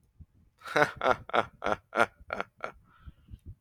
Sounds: Laughter